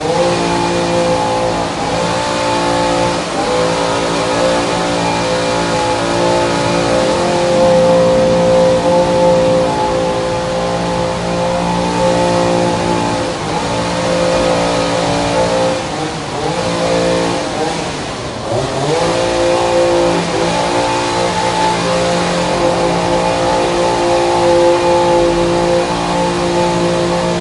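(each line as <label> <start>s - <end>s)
A sustained chainsaw cutting with a strong, steady tone. 0.0s - 27.3s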